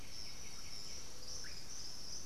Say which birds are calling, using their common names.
White-winged Becard, Russet-backed Oropendola